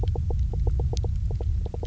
{"label": "biophony, knock croak", "recorder": "SoundTrap 300"}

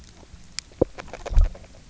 {"label": "biophony, grazing", "recorder": "SoundTrap 300"}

